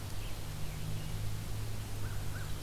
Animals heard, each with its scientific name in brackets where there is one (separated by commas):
American Crow (Corvus brachyrhynchos), Red-eyed Vireo (Vireo olivaceus)